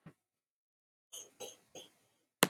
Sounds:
Cough